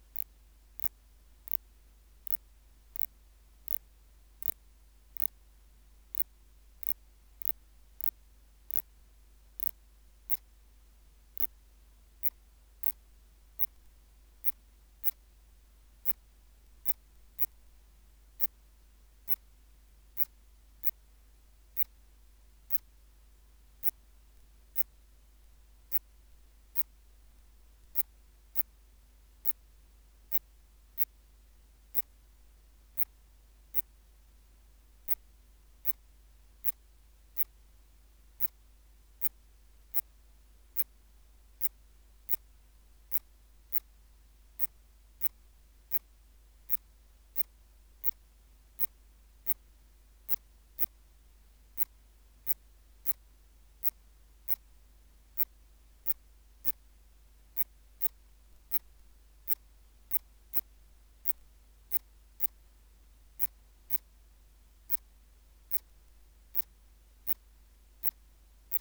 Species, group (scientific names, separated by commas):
Phaneroptera nana, Orthoptera